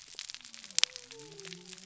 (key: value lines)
label: biophony
recorder: SoundTrap 300